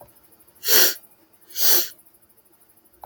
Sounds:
Sniff